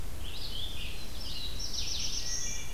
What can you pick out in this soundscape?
Red-eyed Vireo, Black-throated Blue Warbler, Wood Thrush